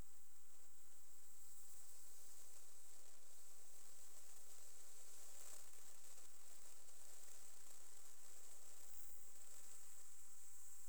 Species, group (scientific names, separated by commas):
Platycleis albopunctata, Orthoptera